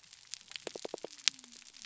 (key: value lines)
label: biophony
recorder: SoundTrap 300